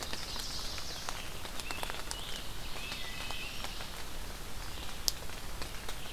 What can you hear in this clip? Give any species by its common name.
Ovenbird, Red-eyed Vireo, Scarlet Tanager, Wood Thrush